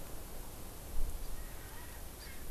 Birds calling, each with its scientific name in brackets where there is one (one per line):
Hawaii Amakihi (Chlorodrepanis virens)
Erckel's Francolin (Pternistis erckelii)